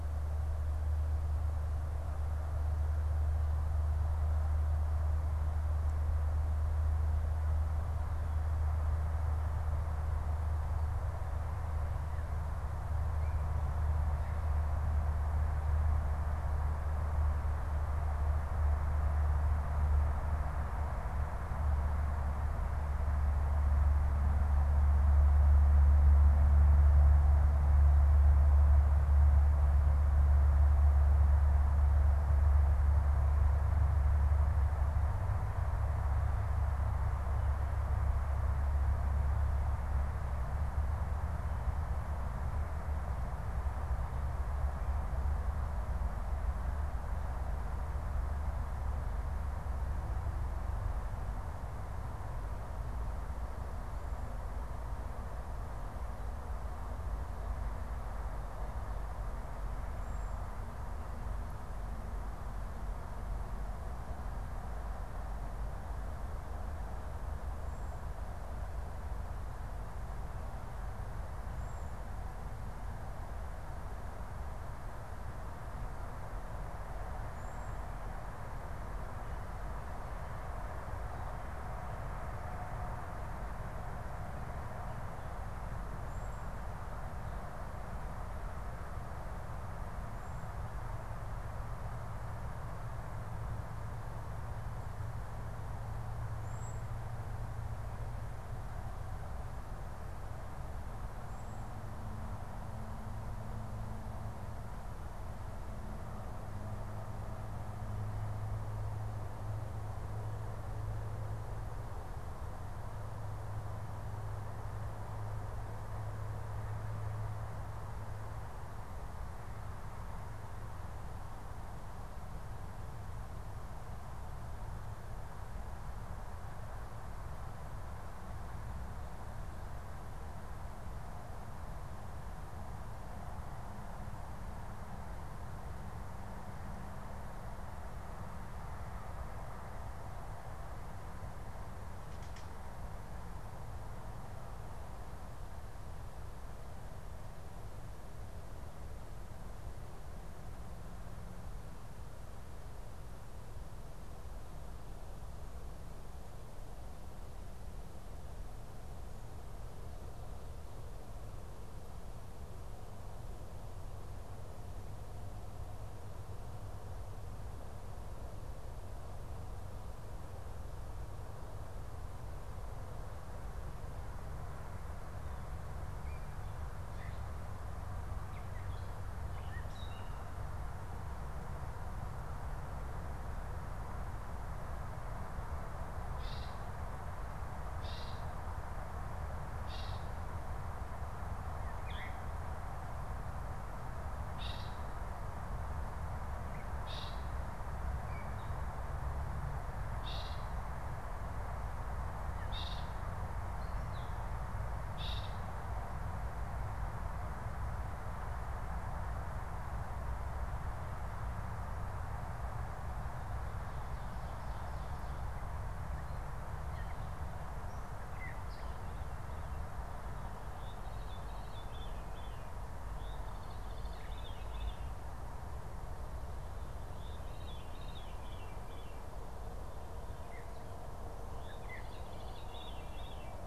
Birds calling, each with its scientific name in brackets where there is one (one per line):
Veery (Catharus fuscescens)
Gray Catbird (Dumetella carolinensis)
Cedar Waxwing (Bombycilla cedrorum)